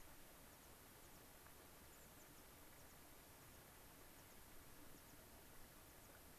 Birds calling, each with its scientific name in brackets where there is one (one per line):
American Pipit (Anthus rubescens)